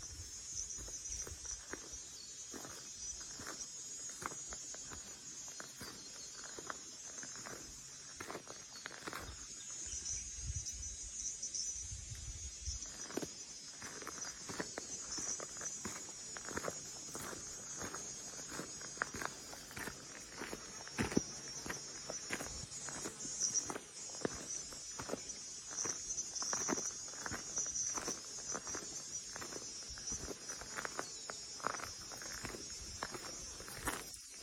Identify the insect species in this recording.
Thopha saccata